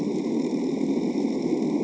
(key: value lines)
label: anthrophony, boat engine
recorder: HydroMoth